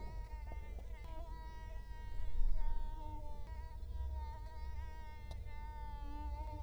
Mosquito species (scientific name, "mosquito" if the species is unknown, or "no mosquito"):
Culex quinquefasciatus